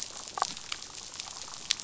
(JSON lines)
{"label": "biophony, damselfish", "recorder": "SoundTrap 500"}